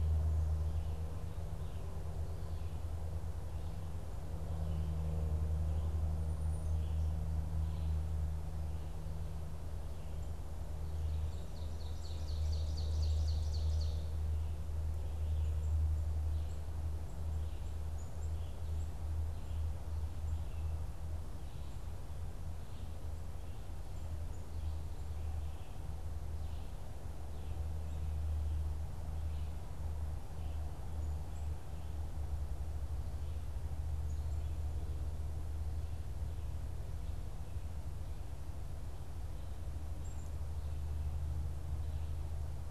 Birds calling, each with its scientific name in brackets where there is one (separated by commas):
Ovenbird (Seiurus aurocapilla), Black-capped Chickadee (Poecile atricapillus)